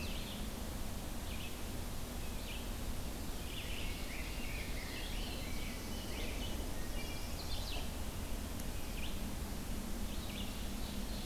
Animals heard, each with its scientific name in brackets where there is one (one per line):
Chestnut-sided Warbler (Setophaga pensylvanica)
Wood Thrush (Hylocichla mustelina)
Ovenbird (Seiurus aurocapilla)
Rose-breasted Grosbeak (Pheucticus ludovicianus)
Red-eyed Vireo (Vireo olivaceus)
Black-throated Blue Warbler (Setophaga caerulescens)